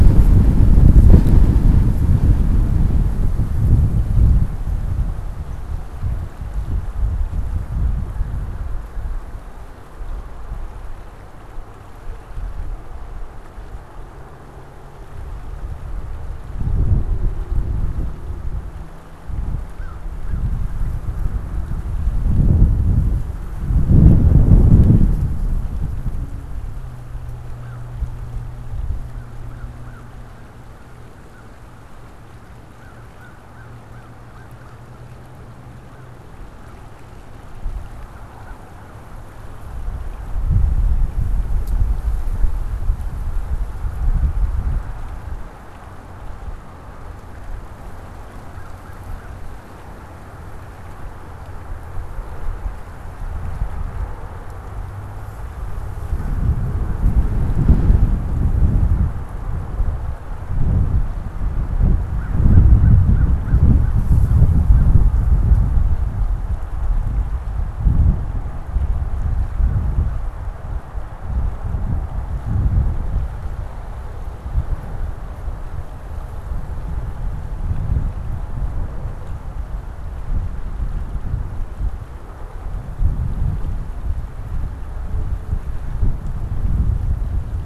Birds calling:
American Crow (Corvus brachyrhynchos)

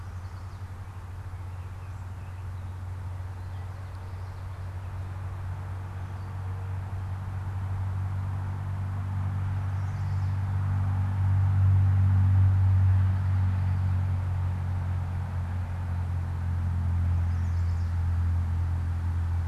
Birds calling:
Chestnut-sided Warbler (Setophaga pensylvanica), unidentified bird

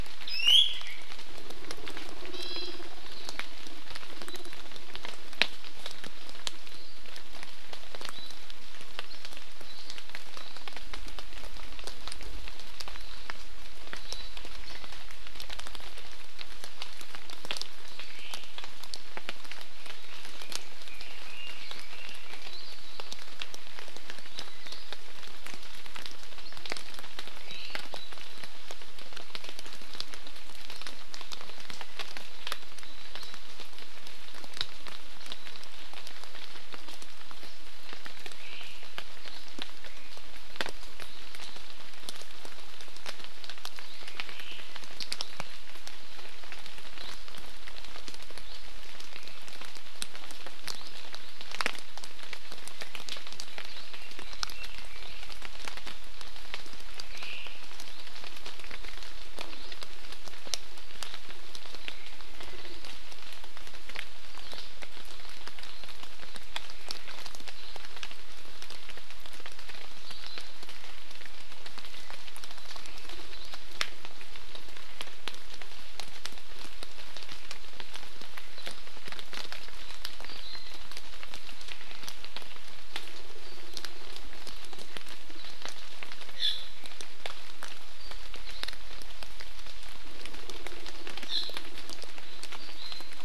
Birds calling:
Iiwi (Drepanis coccinea), Omao (Myadestes obscurus), Red-billed Leiothrix (Leiothrix lutea), Hawaii Amakihi (Chlorodrepanis virens)

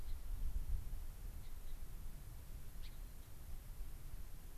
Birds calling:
Gray-crowned Rosy-Finch (Leucosticte tephrocotis)

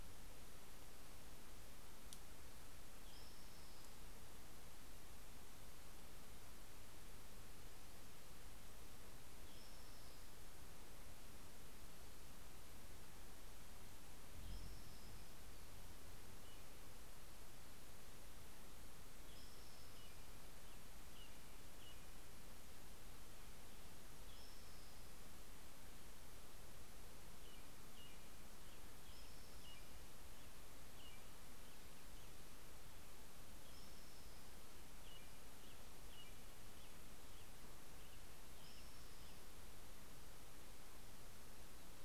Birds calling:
Spotted Towhee (Pipilo maculatus), American Robin (Turdus migratorius)

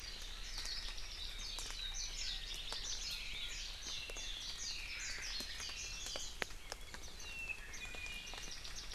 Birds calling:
Iiwi (Drepanis coccinea), Hawaii Creeper (Loxops mana)

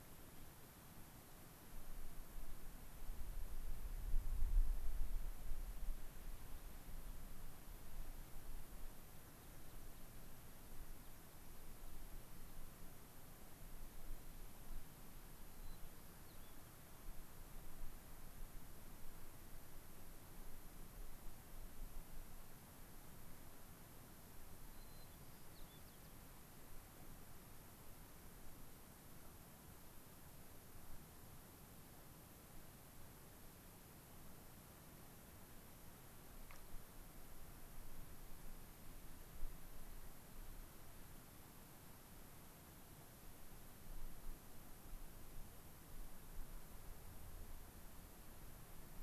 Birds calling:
White-crowned Sparrow (Zonotrichia leucophrys)

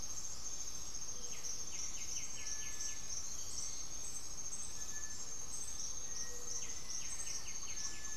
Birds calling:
White-winged Becard (Pachyramphus polychopterus), Cinereous Tinamou (Crypturellus cinereus), Black-faced Antthrush (Formicarius analis), Great Antshrike (Taraba major), Gray-fronted Dove (Leptotila rufaxilla)

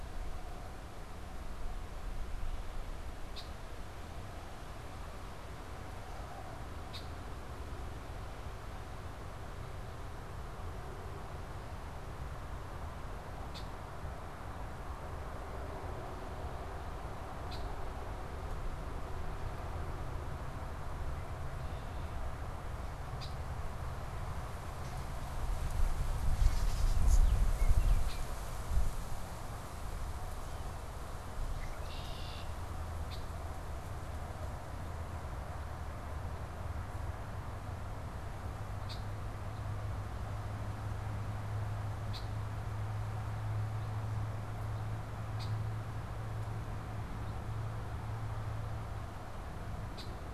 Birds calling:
Baltimore Oriole (Icterus galbula), Gray Catbird (Dumetella carolinensis), Red-winged Blackbird (Agelaius phoeniceus)

